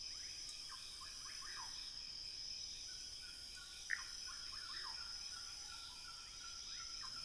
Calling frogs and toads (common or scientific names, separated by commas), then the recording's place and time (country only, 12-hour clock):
rufous frog
Brazil, 12:30am